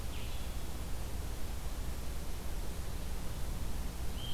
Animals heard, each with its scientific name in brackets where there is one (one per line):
Blue-headed Vireo (Vireo solitarius)